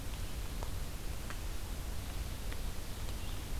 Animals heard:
Ovenbird (Seiurus aurocapilla)

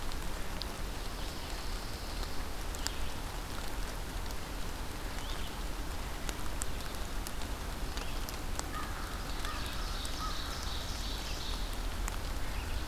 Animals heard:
American Crow (Corvus brachyrhynchos)
Red-eyed Vireo (Vireo olivaceus)
Ovenbird (Seiurus aurocapilla)
Pine Warbler (Setophaga pinus)

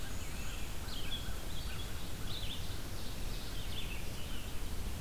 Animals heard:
Black-and-white Warbler (Mniotilta varia)
Red-eyed Vireo (Vireo olivaceus)
Ovenbird (Seiurus aurocapilla)
American Crow (Corvus brachyrhynchos)

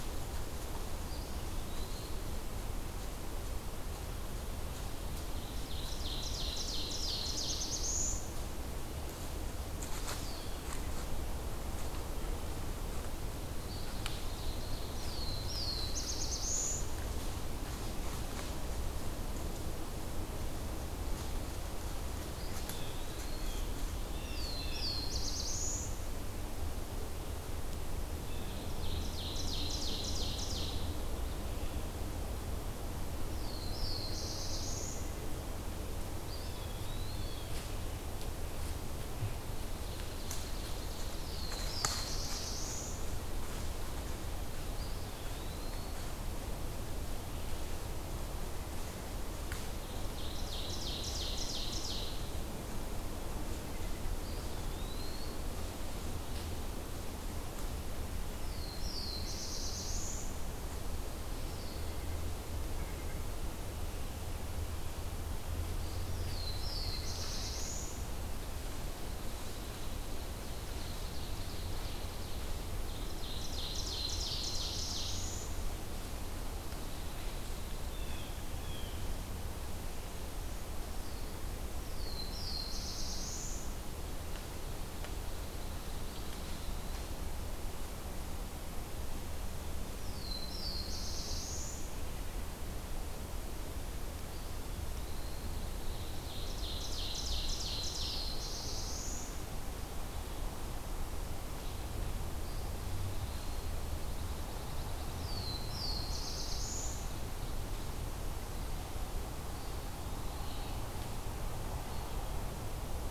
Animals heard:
Pine Warbler (Setophaga pinus)
Blue Jay (Cyanocitta cristata)
Eastern Wood-Pewee (Contopus virens)
Ovenbird (Seiurus aurocapilla)
Black-throated Blue Warbler (Setophaga caerulescens)

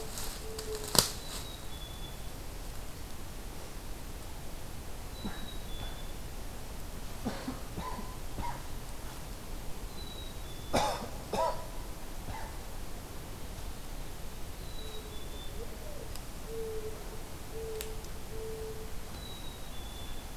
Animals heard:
Black-capped Chickadee (Poecile atricapillus)
Mourning Dove (Zenaida macroura)

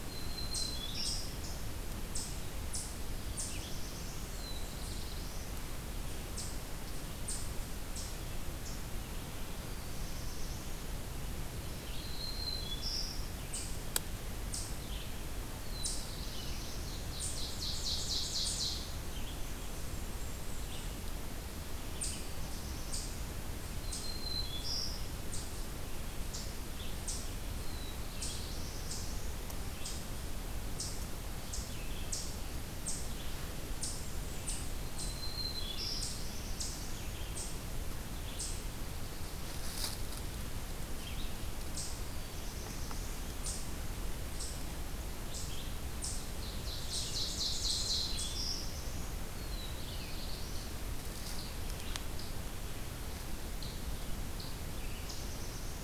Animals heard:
Black-throated Green Warbler (Setophaga virens)
Blackburnian Warbler (Setophaga fusca)
Yellow-rumped Warbler (Setophaga coronata)
Red-eyed Vireo (Vireo olivaceus)
Ovenbird (Seiurus aurocapilla)
Eastern Chipmunk (Tamias striatus)
Black-throated Blue Warbler (Setophaga caerulescens)

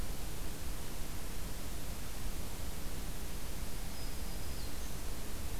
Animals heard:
Black-throated Green Warbler (Setophaga virens)

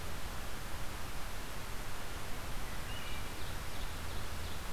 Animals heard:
Ovenbird (Seiurus aurocapilla)

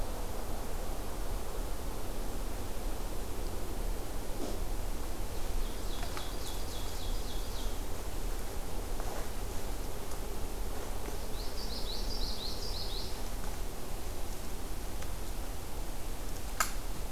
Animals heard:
Common Yellowthroat (Geothlypis trichas)
Ovenbird (Seiurus aurocapilla)

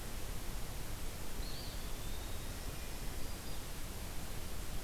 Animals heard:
Eastern Wood-Pewee (Contopus virens)
Black-throated Green Warbler (Setophaga virens)

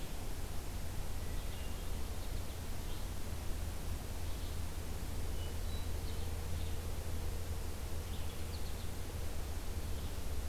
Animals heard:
Hermit Thrush (Catharus guttatus)
American Goldfinch (Spinus tristis)
Red-eyed Vireo (Vireo olivaceus)

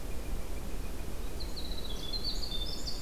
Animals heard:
Northern Flicker (Colaptes auratus)
Winter Wren (Troglodytes hiemalis)

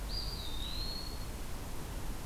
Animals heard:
Eastern Wood-Pewee (Contopus virens)

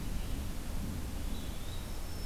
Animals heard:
Eastern Wood-Pewee (Contopus virens)
Black-throated Green Warbler (Setophaga virens)

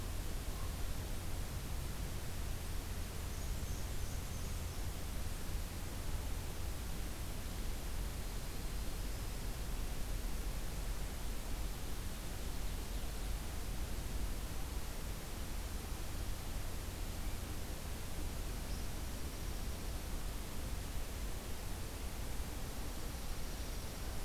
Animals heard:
Black-and-white Warbler (Mniotilta varia)
Dark-eyed Junco (Junco hyemalis)
Yellow-rumped Warbler (Setophaga coronata)

